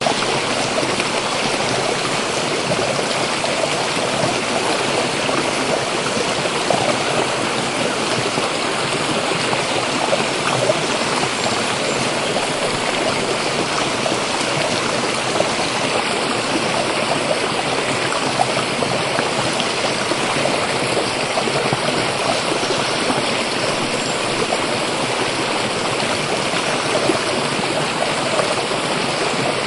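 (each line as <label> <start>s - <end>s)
The natural sound of smooth, continuous water gently rushing over a creek is heard. 0.1s - 29.7s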